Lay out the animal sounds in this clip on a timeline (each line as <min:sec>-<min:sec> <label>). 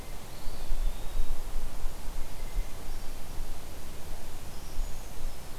0:00.0-0:01.8 Eastern Wood-Pewee (Contopus virens)
0:04.3-0:05.6 Brown Creeper (Certhia americana)